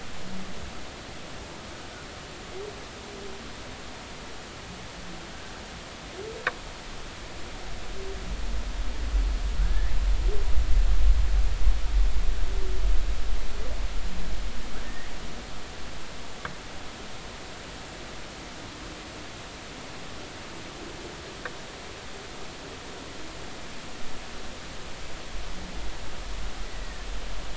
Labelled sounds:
9.6	9.9	humpback whale, 1.3 to 2.1 kHz
14.8	15.1	humpback whale, 1.8 to 2.0 kHz
26.8	27.1	humpback whale, 1.7 to 2.0 kHz

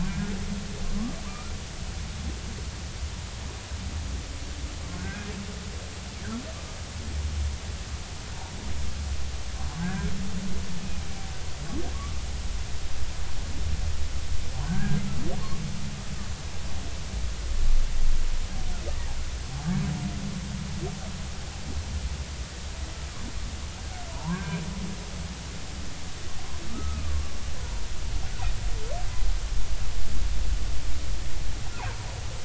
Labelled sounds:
0.0	0.3	humpback whale, 1.5 to 1.7 kHz
5.0	5.3	humpback whale, 1.4 to 1.7 kHz
9.5	10.1	humpback whale, 0.99 to 1.8 kHz
14.6	15.0	humpback whale, 1.5 to 1.7 kHz
24.1	24.6	humpback whale, 0.80 to 1.7 kHz
26.7	27.0	humpback whale, 1.2 to 1.3 kHz
27.6	27.8	humpback whale, 0.90 to 1.1 kHz

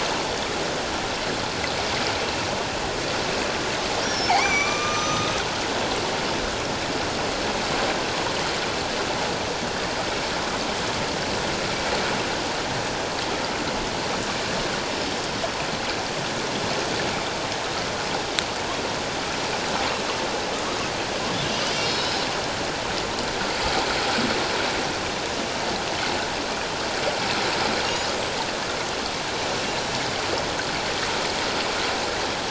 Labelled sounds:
4.0	5.4	killer whale, northern resident, G clan, 1.1 to 6.2 kHz
21.7	22.2	killer whale, northern resident, G clan, 3.6 to 5.4 kHz

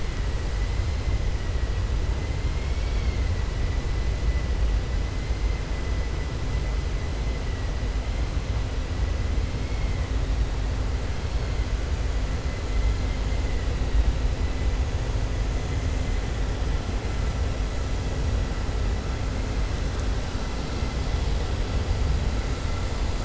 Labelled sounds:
2.5	3.2	vessel noise, 2.1 to 5.5 kHz

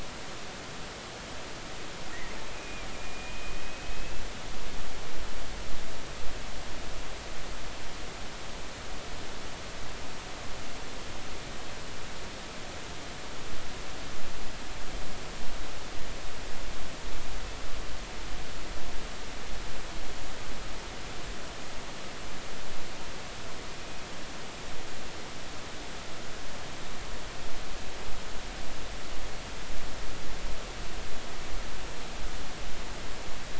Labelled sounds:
2.5	4.3	killer whale, Bigg's (transient), call T12, 2.3 to 2.7 kHz

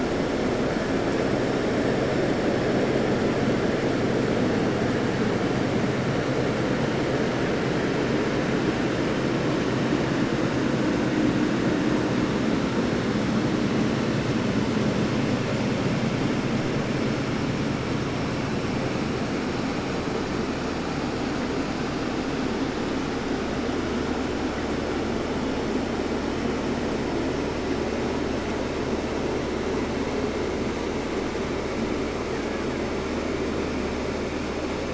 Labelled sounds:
32.2	33.1	killer whale, Bigg's (transient), 0.49 to 3.4 kHz

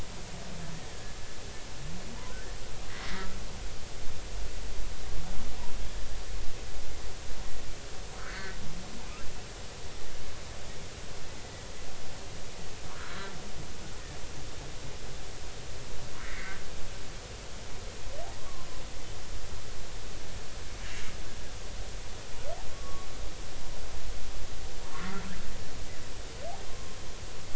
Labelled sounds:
0.9	1.2	humpback whale, 1.6 to 1.9 kHz
2.9	3.3	humpback whale, 1.8 to 2.1 kHz
5.8	6.1	humpback whale, 1.6 to 1.8 kHz
8.2	8.6	humpback whale, 1.2 to 2.2 kHz
12.9	13.3	humpback whale, 0.93 to 1.8 kHz
16.2	16.6	humpback whale, 1.5 to 2.3 kHz
18.4	18.7	humpback whale, 0.99 to 1.2 kHz
22.7	23.1	humpback whale, 1.1 to 1.2 kHz
26.7	27.0	humpback whale, 0.96 to 1.1 kHz

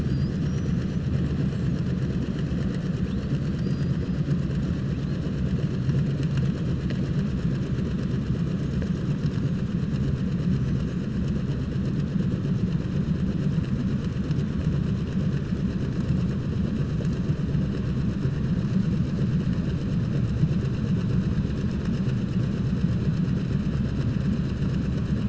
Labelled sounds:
3.3	4.0	killer whale, southern resident, 4.4 to 5.6 kHz

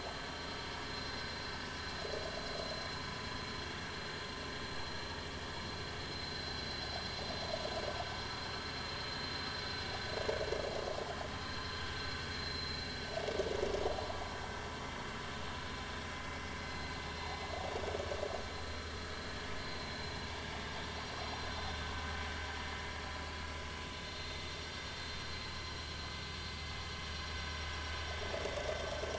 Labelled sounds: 0.8	1.1	vessel noise, 5.1 to 5.2 kHz
6.1	6.9	vessel noise, 4.0 to 4.6 kHz
11.3	11.8	vessel noise, 4.1 to 4.3 kHz
12.4	12.8	vessel noise, 3.9 to 4.2 kHz
16.6	17.0	vessel noise, 4.0 to 4.1 kHz
18.7	18.9	vessel noise, 4.1 to 4.2 kHz
19.8	20.3	vessel noise, 4.0 to 4.1 kHz

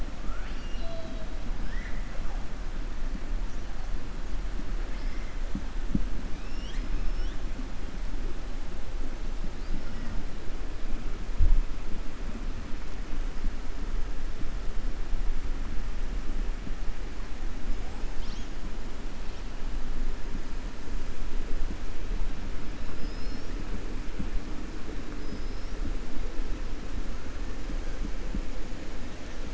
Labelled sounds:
0.2	1.3	killer whale, 1.2 to 5.7 kHz

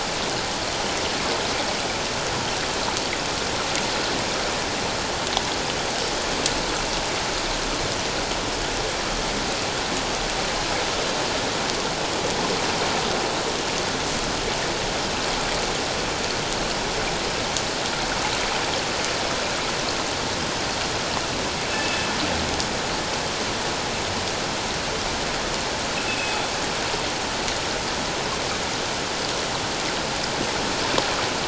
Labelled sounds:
21.7	22.1	killer whale, northern resident, G clan, 2.6 to 2.7 kHz
26.1	26.4	killer whale, northern resident, G clan, 2.5 to 2.7 kHz

